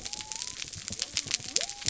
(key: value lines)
label: biophony
recorder: SoundTrap 300